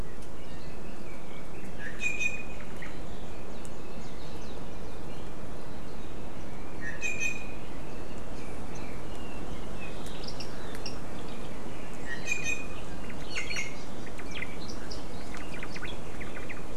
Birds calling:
Iiwi (Drepanis coccinea), Omao (Myadestes obscurus)

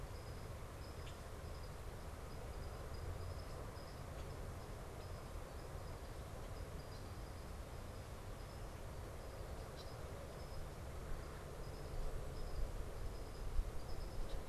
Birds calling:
Common Grackle (Quiscalus quiscula)

